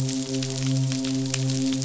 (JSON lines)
{"label": "biophony, midshipman", "recorder": "SoundTrap 500"}